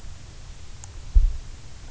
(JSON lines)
{"label": "anthrophony, boat engine", "recorder": "SoundTrap 300"}